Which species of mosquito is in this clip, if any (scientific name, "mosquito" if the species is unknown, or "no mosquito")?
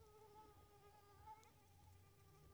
Anopheles gambiae s.l.